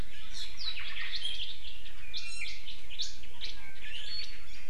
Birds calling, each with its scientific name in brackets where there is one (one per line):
Omao (Myadestes obscurus)
Iiwi (Drepanis coccinea)